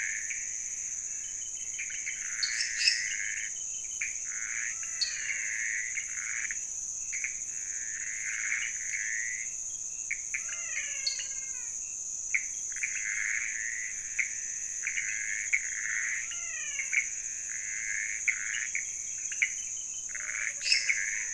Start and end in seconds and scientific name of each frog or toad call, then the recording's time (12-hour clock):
0.0	21.3	Pithecopus azureus
2.2	3.1	Dendropsophus minutus
4.7	5.7	Physalaemus albonotatus
4.9	5.3	Dendropsophus nanus
10.5	11.8	Physalaemus albonotatus
11.0	11.4	Dendropsophus nanus
16.2	17.1	Physalaemus albonotatus
20.6	21.0	Dendropsophus minutus
1:15am